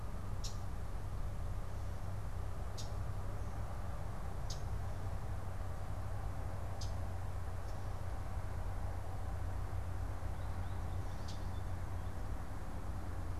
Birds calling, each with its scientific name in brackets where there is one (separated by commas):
American Goldfinch (Spinus tristis), Common Yellowthroat (Geothlypis trichas)